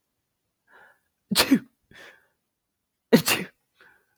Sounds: Sneeze